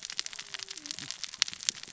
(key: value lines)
label: biophony, cascading saw
recorder: SoundTrap 600 or HydroMoth